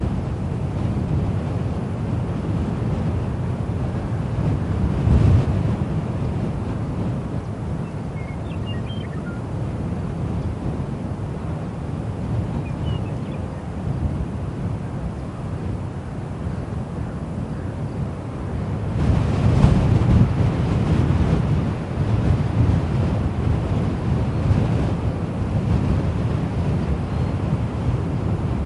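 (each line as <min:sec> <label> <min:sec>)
0:00.0 Strong wind blowing. 0:07.8
0:07.9 Birds chirping softly. 0:09.5
0:09.5 A light wind is blowing outdoors. 0:18.9
0:12.5 Birds chirping softly. 0:13.7
0:16.6 Frogs croak in the distance. 0:18.0
0:17.5 Crickets chirping softly and at a distance. 0:18.2
0:18.9 Strong wind or storm blowing outdoors. 0:28.7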